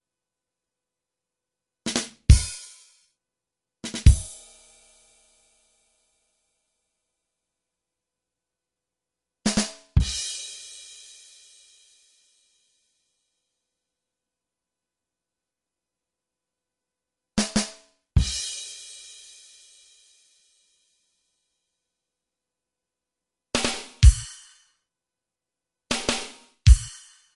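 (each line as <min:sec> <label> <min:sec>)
0:01.8 Drums play briefly in a rhythmic pattern. 0:03.1
0:03.8 Drums play briefly in a rhythmic pattern. 0:07.5
0:09.4 Drums play briefly in a rhythmic pattern. 0:13.8
0:17.3 Drums play briefly in a rhythmic pattern. 0:22.5
0:23.5 Drums play briefly in a rhythmic pattern. 0:24.8
0:25.9 Drums play briefly in a rhythmic pattern. 0:27.4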